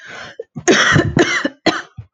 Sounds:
Cough